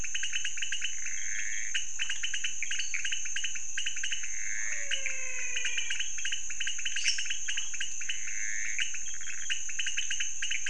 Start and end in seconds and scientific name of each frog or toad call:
0.0	9.1	Pithecopus azureus
0.0	10.6	Leptodactylus podicipinus
2.7	3.1	Dendropsophus nanus
4.5	6.5	Physalaemus albonotatus
6.9	7.4	Dendropsophus minutus